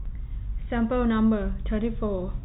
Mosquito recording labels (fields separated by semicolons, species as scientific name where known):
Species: no mosquito; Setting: cup